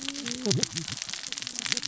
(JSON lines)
{"label": "biophony, cascading saw", "recorder": "SoundTrap 600 or HydroMoth"}